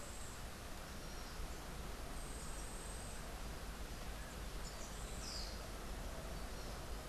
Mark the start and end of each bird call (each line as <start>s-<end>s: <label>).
0.0s-7.1s: Yellow-faced Grassquit (Tiaris olivaceus)
5.0s-5.7s: Orange-billed Nightingale-Thrush (Catharus aurantiirostris)